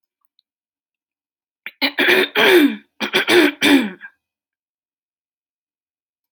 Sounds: Throat clearing